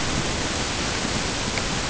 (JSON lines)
{"label": "ambient", "recorder": "HydroMoth"}